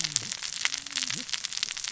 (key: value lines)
label: biophony, cascading saw
recorder: SoundTrap 600 or HydroMoth